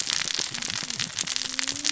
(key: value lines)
label: biophony, cascading saw
recorder: SoundTrap 600 or HydroMoth